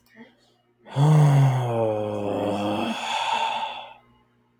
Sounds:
Sigh